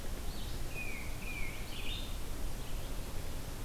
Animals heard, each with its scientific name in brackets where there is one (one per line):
Red-eyed Vireo (Vireo olivaceus)
Tufted Titmouse (Baeolophus bicolor)